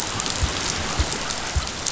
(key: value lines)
label: biophony
recorder: SoundTrap 500